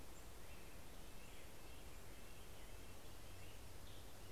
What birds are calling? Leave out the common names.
Sitta canadensis